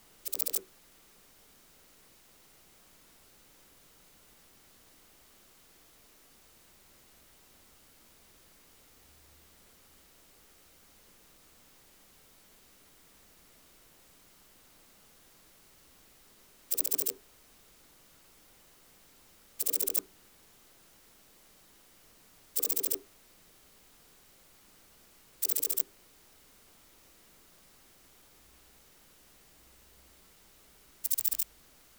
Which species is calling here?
Pachytrachis gracilis